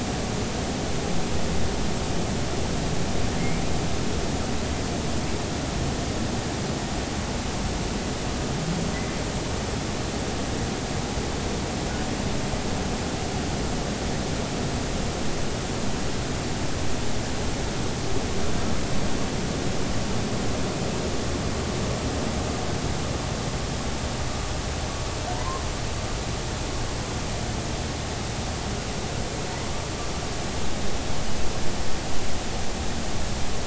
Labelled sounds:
3.4	3.6	humpback whale, 2.0 to 2.4 kHz
25.3	25.6	humpback whale, 0.86 to 1.1 kHz

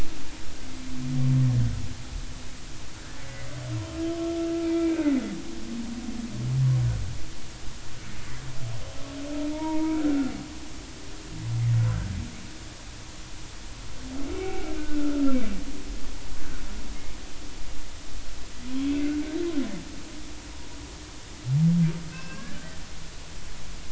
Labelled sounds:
3.2	3.5	humpback whale, 1.9 to 2.1 kHz
4.6	5.1	humpback whale, 1.4 to 2.4 kHz
9.5	10.3	humpback whale, 0.86 to 1.5 kHz
14.3	15.4	humpback whale, 1.3 to 2.7 kHz
22.1	22.6	humpback whale, 1.0 to 2.8 kHz

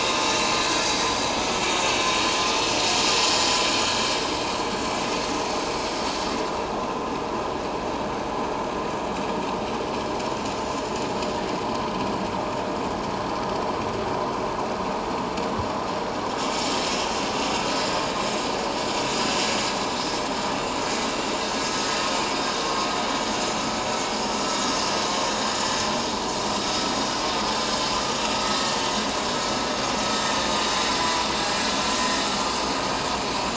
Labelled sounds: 0.7	1.0	vessel noise, 4.8 to 4.9 kHz
16.4	16.7	vessel noise, 7.1 to 7.3 kHz
32.0	32.2	vessel noise, 1.8 to 1.9 kHz

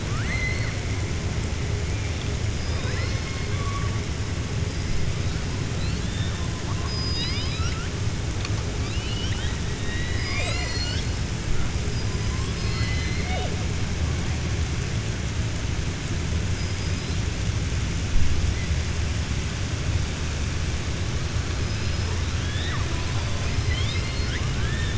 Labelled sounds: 0.0	0.7	killer whale, southern resident, 1.2 to 4.5 kHz
5.7	6.4	killer whale, southern resident, 3.3 to 4.6 kHz
6.8	7.9	killer whale, southern resident, 1.3 to 5.7 kHz
8.7	11.1	killer whale, southern resident, 0.57 to 7.9 kHz
16.5	17.2	killer whale, southern resident, 3.9 to 5.1 kHz
23.0	24.9	killer whale, southern resident, 1.1 to 5.3 kHz

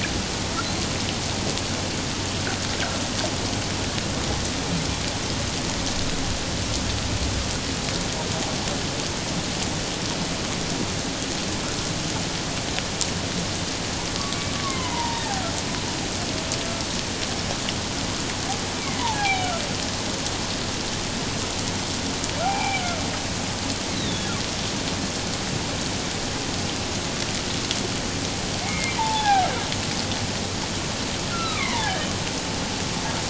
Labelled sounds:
14.6	15.2	humpback whale, 0.88 to 1.2 kHz
18.8	19.5	humpback whale, 0.78 to 2.5 kHz
22.4	22.8	humpback whale, 0.78 to 2.5 kHz
23.9	24.3	humpback whale, 3.3 to 4.1 kHz
28.6	29.5	humpback whale, 0.78 to 2.4 kHz
31.3	32.1	humpback whale, 0.78 to 3.2 kHz

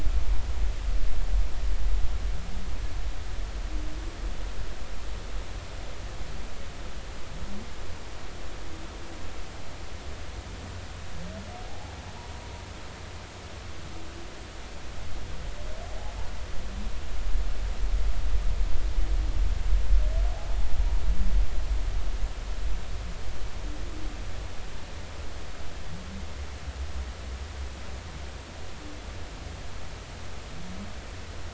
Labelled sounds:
11.7	11.9	humpback whale, 0.80 to 0.93 kHz

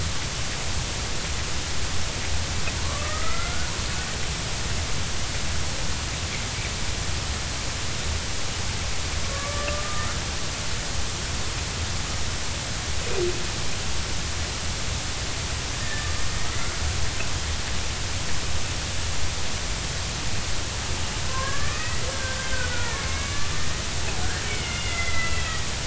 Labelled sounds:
2.8	3.7	killer whale, Bigg's (transient), 0.93 to 2.1 kHz
9.3	10.1	killer whale, Bigg's (transient), 1.1 to 1.2 kHz
15.8	16.1	killer whale, Bigg's (transient), 1.7 to 1.9 kHz
21.3	23.5	killer whale, Bigg's (transient), 0.99 to 2.7 kHz
24.4	25.5	killer whale, Bigg's (transient), 1.3 to 3.0 kHz

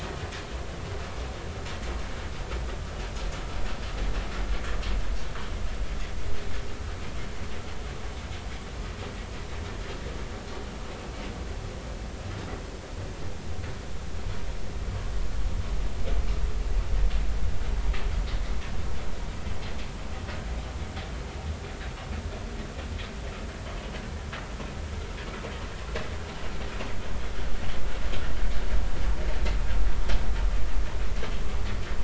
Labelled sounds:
10.9	11.1	vessel noise, 2.5 to 2.8 kHz

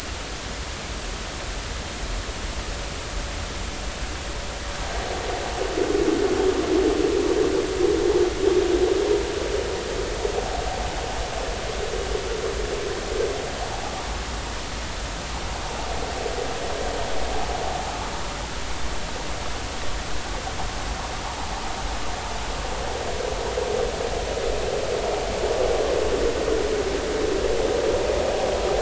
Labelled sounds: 21.2	21.5	vessel noise, 0.80 to 1.0 kHz

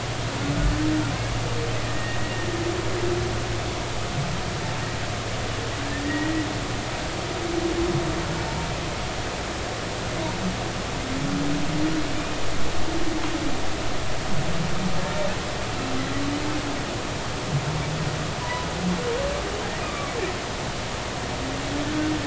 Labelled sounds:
1.8	2.5	humpback whale, 1.8 to 2.0 kHz
6.0	6.5	humpback whale, 1.8 to 2.0 kHz
18.4	18.7	humpback whale, 0.93 to 1.1 kHz
19.8	20.1	humpback whale, 1.1 to 1.3 kHz

